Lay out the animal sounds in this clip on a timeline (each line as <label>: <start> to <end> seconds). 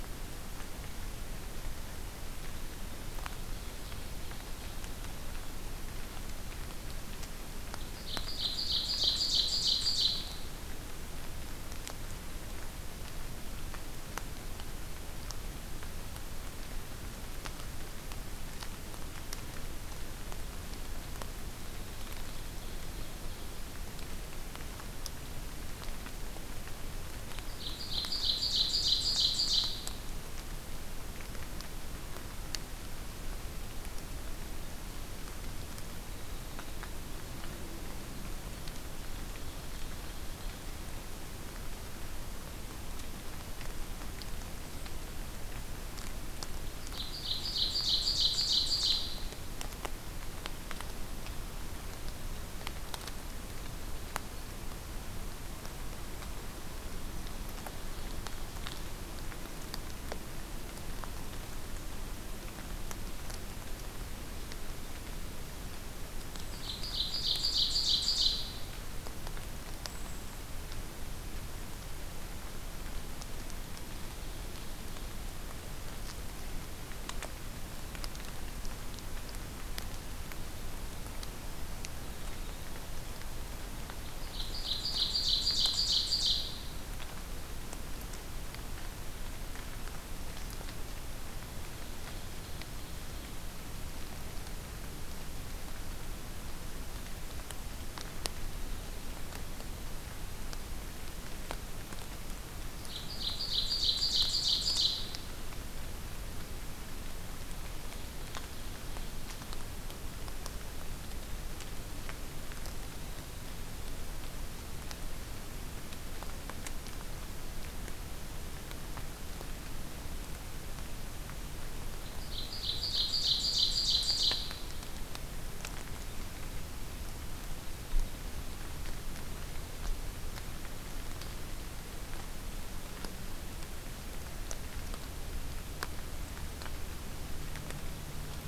Ovenbird (Seiurus aurocapilla): 3.1 to 4.9 seconds
Ovenbird (Seiurus aurocapilla): 7.9 to 10.2 seconds
Ovenbird (Seiurus aurocapilla): 21.6 to 23.7 seconds
Ovenbird (Seiurus aurocapilla): 27.4 to 30.0 seconds
Ovenbird (Seiurus aurocapilla): 38.9 to 40.8 seconds
Ovenbird (Seiurus aurocapilla): 46.8 to 49.3 seconds
Ovenbird (Seiurus aurocapilla): 66.5 to 68.6 seconds
Golden-crowned Kinglet (Regulus satrapa): 69.8 to 70.4 seconds
Ovenbird (Seiurus aurocapilla): 84.2 to 86.6 seconds
Ovenbird (Seiurus aurocapilla): 91.7 to 93.3 seconds
Ovenbird (Seiurus aurocapilla): 102.8 to 105.2 seconds
Ovenbird (Seiurus aurocapilla): 121.9 to 124.6 seconds